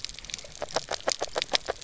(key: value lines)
label: biophony, grazing
recorder: SoundTrap 300